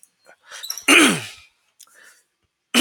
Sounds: Throat clearing